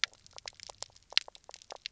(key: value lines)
label: biophony, knock croak
recorder: SoundTrap 300